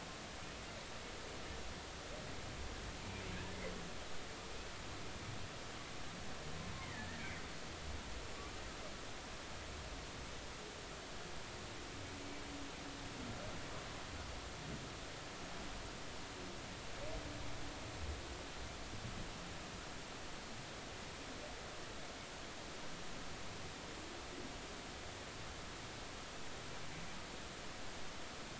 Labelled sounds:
3.3	3.6	humpback whale, 1.6 to 1.8 kHz
6.8	7.2	humpback whale, 1.7 to 2.2 kHz

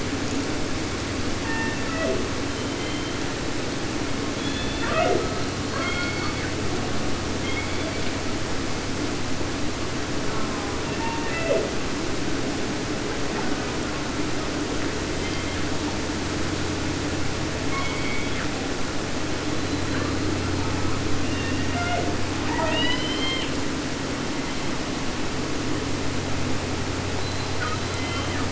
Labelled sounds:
1.4	2.3	killer whale, southern resident, J pod, call S01, 0.19 to 3.1 kHz
2.4	3.4	killer whale, 0.30 to 4.5 kHz
4.3	5.5	killer whale, southern resident, J pod, call S01, 0.24 to 4.6 kHz
5.5	6.6	killer whale, 0.50 to 5.0 kHz
7.3	8.4	killer whale, 0.79 to 5.0 kHz
10.2	10.8	killer whale, southern resident, J pod, call S04, 0.51 to 1.9 kHz
10.8	11.7	killer whale, southern resident, J pod, call S01, 0.15 to 3.0 kHz
15.1	16.0	killer whale, 0.49 to 4.2 kHz
17.5	18.8	killer whale, 0.50 to 6.6 kHz
19.5	21.0	killer whale, 0.25 to 4.6 kHz
21.2	22.2	killer whale, southern resident, J pod, call S01, 0.23 to 6.4 kHz
22.4	23.6	killer whale, southern resident, J pod, call S44, 0.50 to 6.9 kHz
24.2	24.9	killer whale, 0.91 to 4.6 kHz
27.5	28.5	killer whale, southern resident, 0.50 to 3.7 kHz

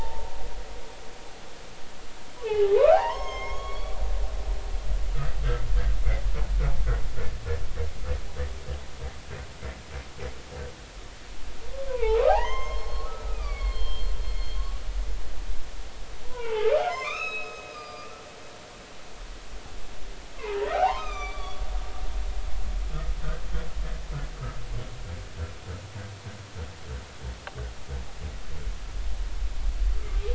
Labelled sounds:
2.4	4.0	humpback whale, 0.80 to 6.6 kHz
4.5	5.0	humpback whale, 3.2 to 3.5 kHz
11.9	14.1	humpback whale, 0.80 to 6.4 kHz
14.6	14.8	humpback whale, 1.1 to 1.2 kHz
16.2	18.1	humpback whale, 0.80 to 5.3 kHz
20.4	21.6	humpback whale, 0.80 to 4.7 kHz

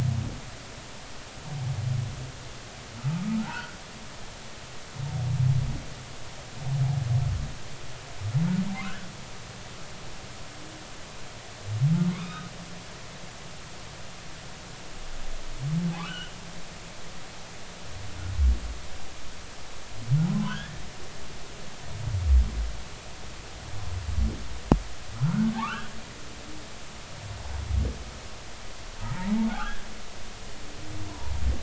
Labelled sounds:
3.3	3.8	humpback whale, 0.80 to 1.6 kHz
8.7	9.1	humpback whale, 0.96 to 1.8 kHz
12.1	12.5	humpback whale, 1.1 to 3.8 kHz
16.0	16.3	humpback whale, 0.96 to 3.1 kHz
20.2	20.8	humpback whale, 0.80 to 3.5 kHz
25.2	25.9	humpback whale, 0.80 to 3.1 kHz
29.0	29.8	humpback whale, 0.86 to 3.4 kHz
31.1	31.3	humpback whale, 0.90 to 1.1 kHz

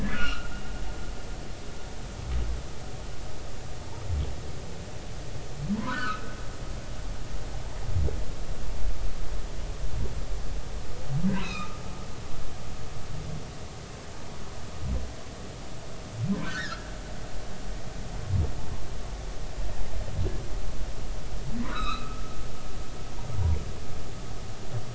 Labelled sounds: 0.1	0.5	humpback whale, 1.1 to 3.0 kHz
5.8	6.4	humpback whale, 0.93 to 1.6 kHz
11.3	11.8	humpback whale, 1.2 to 4.0 kHz
16.4	16.8	humpback whale, 1.3 to 1.9 kHz
21.6	22.2	humpback whale, 1.1 to 4.2 kHz

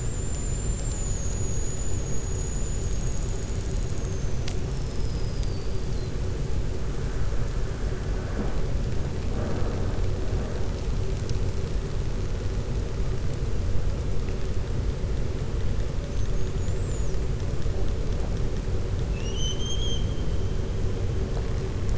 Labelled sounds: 19.1	20.1	killer whale, 5.6 to 6.6 kHz

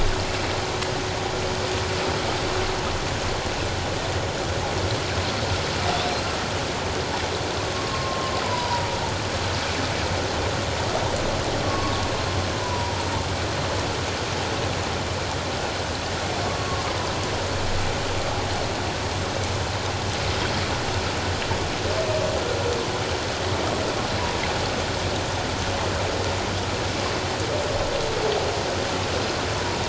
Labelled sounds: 7.7	8.9	humpback whale, 0.91 to 5.0 kHz
11.7	13.0	humpback whale, 0.88 to 1.2 kHz

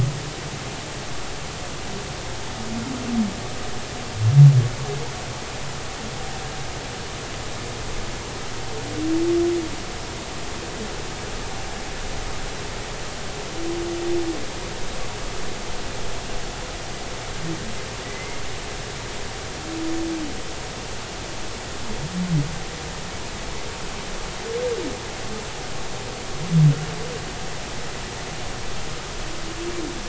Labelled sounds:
18.0	18.4	humpback whale, 1.9 to 2.2 kHz

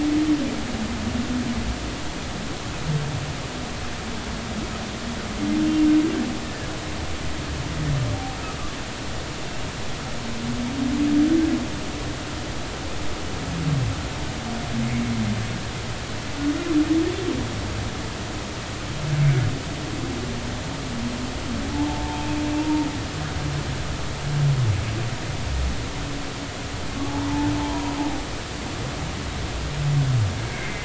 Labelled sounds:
6.4	6.7	humpback whale, 1.6 to 1.8 kHz
21.7	22.9	humpback whale, 0.80 to 1.1 kHz
27.0	27.9	humpback whale, 0.80 to 1.1 kHz
30.5	30.8	humpback whale, 2.0 to 2.3 kHz

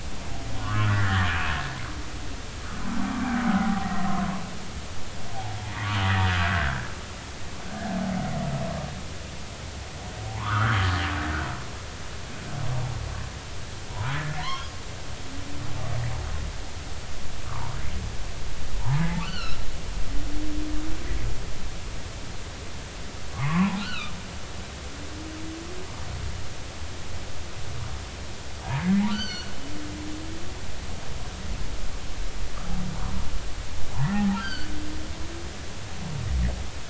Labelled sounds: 0.6	1.5	humpback whale, 0.99 to 3.2 kHz
3.5	3.9	humpback whale, 0.80 to 0.83 kHz
5.6	5.9	humpback whale, 1.8 to 2.2 kHz
6.5	6.9	humpback whale, 1.3 to 1.8 kHz
10.2	10.9	humpback whale, 0.80 to 3.4 kHz
14.3	14.7	humpback whale, 0.93 to 3.4 kHz
17.5	17.7	humpback whale, 0.83 to 1.5 kHz
19.2	19.6	humpback whale, 1.1 to 4.6 kHz
23.3	24.1	humpback whale, 0.80 to 4.5 kHz
29.1	29.5	humpback whale, 1.3 to 6.2 kHz
34.0	34.7	humpback whale, 0.80 to 4.9 kHz

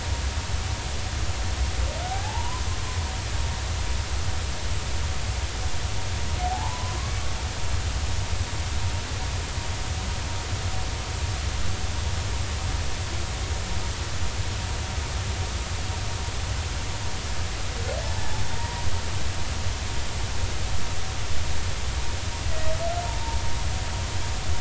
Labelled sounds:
2.0	2.6	humpback whale, 0.80 to 1.8 kHz
6.4	7.0	humpback whale, 0.80 to 1.1 kHz
18.0	18.8	humpback whale, 0.83 to 1.0 kHz

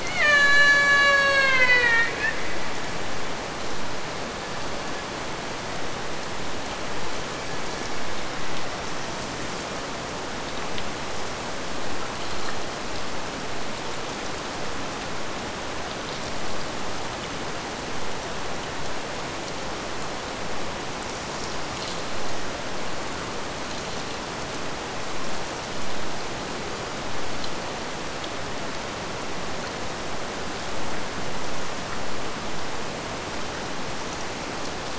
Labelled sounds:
0.0	2.4	killer whale, Bigg's (transient), AT1 transient, 0.40 to 8.0 kHz

